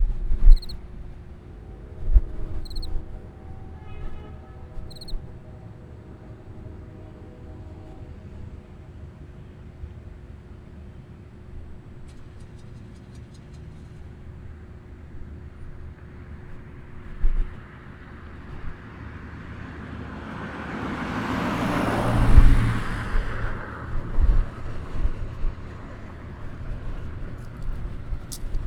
What insect is making a sound?
cricket